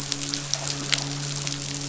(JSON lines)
{"label": "biophony, midshipman", "recorder": "SoundTrap 500"}